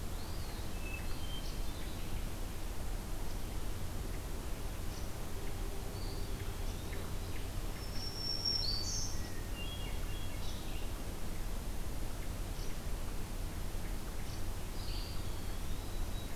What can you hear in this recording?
Eastern Wood-Pewee, Hermit Thrush, Black-throated Green Warbler